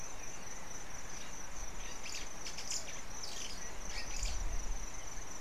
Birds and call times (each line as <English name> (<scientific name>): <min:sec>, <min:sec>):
White-browed Sparrow-Weaver (Plocepasser mahali): 0:02.7